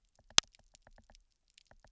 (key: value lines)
label: biophony, knock
recorder: SoundTrap 300